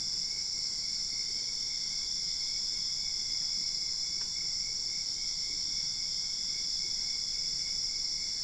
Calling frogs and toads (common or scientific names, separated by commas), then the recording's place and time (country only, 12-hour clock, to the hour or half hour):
none
Brazil, ~2am